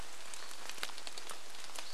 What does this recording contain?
Hutton's Vireo song, rain